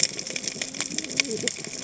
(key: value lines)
label: biophony, cascading saw
recorder: HydroMoth